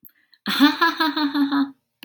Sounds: Laughter